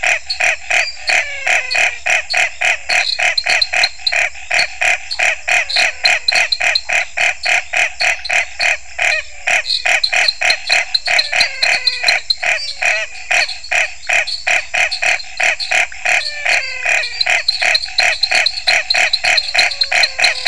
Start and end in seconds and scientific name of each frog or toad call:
0.0	20.4	Dendropsophus nanus
0.0	20.4	Scinax fuscovarius
0.9	2.2	Physalaemus albonotatus
10.8	12.6	Physalaemus albonotatus
15.7	17.5	Physalaemus albonotatus
19.6	20.4	Physalaemus albonotatus